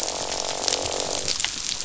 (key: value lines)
label: biophony, croak
recorder: SoundTrap 500